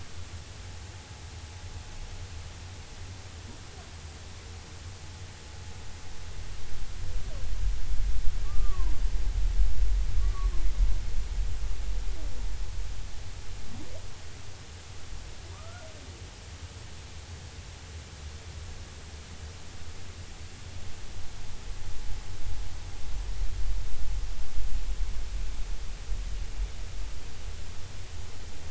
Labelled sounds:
8.4	9.0	humpback whale, 0.90 to 1.2 kHz
10.2	10.5	humpback whale, 1.1 to 1.2 kHz
15.5	15.9	humpback whale, 1.1 to 1.5 kHz

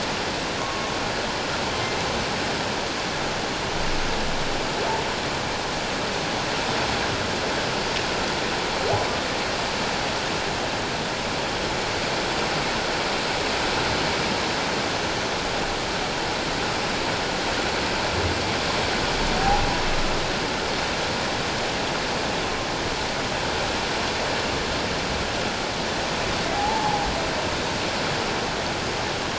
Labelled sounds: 26.5	27.0	humpback whale, 0.78 to 0.97 kHz

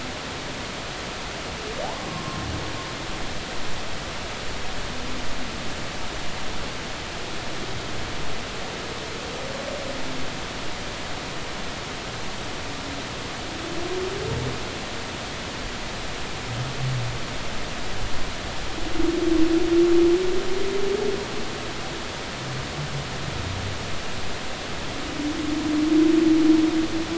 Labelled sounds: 2.1	2.4	humpback whale, 1.0 to 1.1 kHz

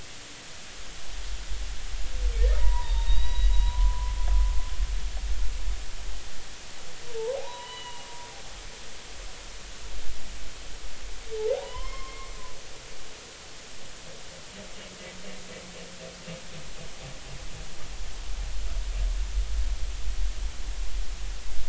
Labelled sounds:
2.6	4.2	humpback whale, 0.83 to 4.0 kHz
7.3	8.1	humpback whale, 0.80 to 4.0 kHz
11.6	12.3	humpback whale, 0.90 to 5.4 kHz

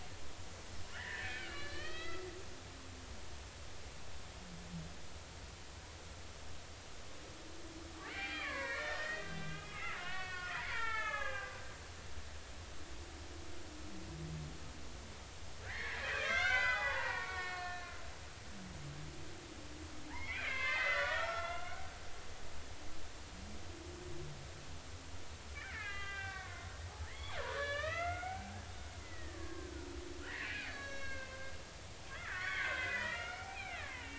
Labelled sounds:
0.9	2.5	killer whale, Bigg's (transient), 1.2 to 4.7 kHz
8.1	11.6	killer whale, Bigg's (transient), 0.80 to 5.7 kHz
15.6	18.0	killer whale, Bigg's (transient), 0.80 to 6.1 kHz
20.1	21.8	killer whale, Bigg's (transient), 0.80 to 4.8 kHz
25.5	28.6	killer whale, Bigg's (transient), 0.80 to 4.8 kHz
29.0	29.9	killer whale, Bigg's (transient), 1.0 to 2.1 kHz
30.3	31.4	killer whale, Bigg's (transient), 0.99 to 5.6 kHz
32.1	34.1	killer whale, Bigg's (transient), 0.80 to 3.1 kHz

